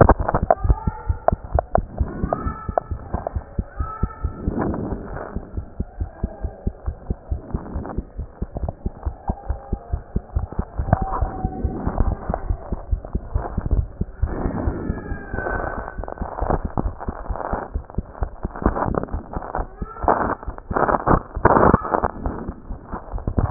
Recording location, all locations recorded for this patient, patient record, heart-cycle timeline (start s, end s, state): mitral valve (MV)
aortic valve (AV)+pulmonary valve (PV)+tricuspid valve (TV)+mitral valve (MV)
#Age: Child
#Sex: Male
#Height: 130.0 cm
#Weight: 27.3 kg
#Pregnancy status: False
#Murmur: Absent
#Murmur locations: nan
#Most audible location: nan
#Systolic murmur timing: nan
#Systolic murmur shape: nan
#Systolic murmur grading: nan
#Systolic murmur pitch: nan
#Systolic murmur quality: nan
#Diastolic murmur timing: nan
#Diastolic murmur shape: nan
#Diastolic murmur grading: nan
#Diastolic murmur pitch: nan
#Diastolic murmur quality: nan
#Outcome: Normal
#Campaign: 2015 screening campaign
0.00	5.39	unannotated
5.39	5.53	diastole
5.53	5.63	S1
5.63	5.78	systole
5.78	5.84	S2
5.84	5.97	diastole
5.97	6.08	S1
6.08	6.21	systole
6.21	6.30	S2
6.30	6.41	diastole
6.41	6.50	S1
6.50	6.65	systole
6.65	6.71	S2
6.71	6.84	diastole
6.84	6.93	S1
6.93	7.07	systole
7.07	7.15	S2
7.15	7.28	diastole
7.28	7.40	S1
7.40	7.52	systole
7.52	7.58	S2
7.58	7.74	diastole
7.74	7.81	S1
7.81	7.97	systole
7.97	8.02	S2
8.02	8.18	diastole
8.18	8.26	S1
8.26	8.40	systole
8.40	8.47	S2
8.47	8.62	diastole
8.62	8.69	S1
8.69	8.83	systole
8.83	8.92	S2
8.92	9.04	diastole
9.04	9.14	S1
9.14	9.26	systole
9.26	9.34	S2
9.34	9.47	diastole
9.47	9.58	S1
9.58	9.70	systole
9.70	9.78	S2
9.78	9.90	diastole
9.90	10.00	S1
10.00	10.14	systole
10.14	10.20	S2
10.20	10.33	diastole
10.33	10.42	S1
10.42	10.56	systole
10.56	10.65	S2
10.65	10.77	diastole
10.77	23.50	unannotated